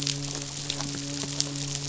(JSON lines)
{"label": "biophony, midshipman", "recorder": "SoundTrap 500"}